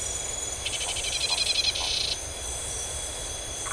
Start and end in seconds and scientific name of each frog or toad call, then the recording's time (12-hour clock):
0.5	2.2	Scinax rizibilis
12:15am